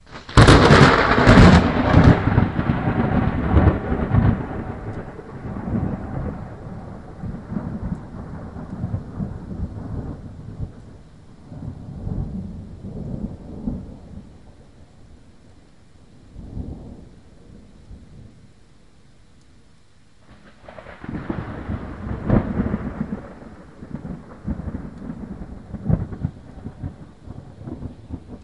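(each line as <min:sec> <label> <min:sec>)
0:00.1 Thunder rumbles across the sky. 0:14.7
0:16.1 Lightning flickers in the distance with a soft rumble during rain. 0:19.2
0:20.4 Lightning flashes through the rainy sky. 0:28.4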